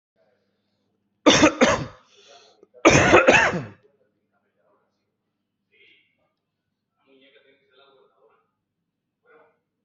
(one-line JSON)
{"expert_labels": [{"quality": "ok", "cough_type": "dry", "dyspnea": false, "wheezing": false, "stridor": false, "choking": false, "congestion": false, "nothing": true, "diagnosis": "COVID-19", "severity": "mild"}], "age": 45, "gender": "male", "respiratory_condition": true, "fever_muscle_pain": false, "status": "symptomatic"}